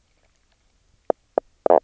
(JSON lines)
{"label": "biophony, knock croak", "recorder": "SoundTrap 300"}